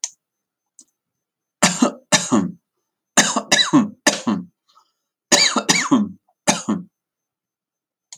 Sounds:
Cough